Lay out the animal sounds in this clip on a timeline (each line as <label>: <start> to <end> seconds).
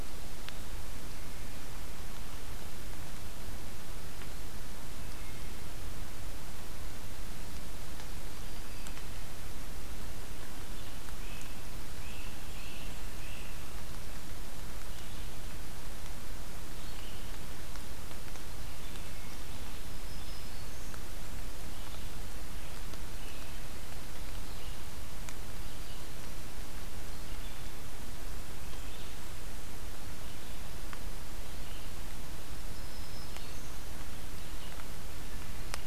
Red-eyed Vireo (Vireo olivaceus): 0.0 to 35.9 seconds
Wood Thrush (Hylocichla mustelina): 4.7 to 5.8 seconds
Black-throated Green Warbler (Setophaga virens): 8.0 to 9.1 seconds
Great Crested Flycatcher (Myiarchus crinitus): 11.0 to 13.6 seconds
Black-throated Green Warbler (Setophaga virens): 19.6 to 21.1 seconds
Black-throated Green Warbler (Setophaga virens): 32.6 to 33.9 seconds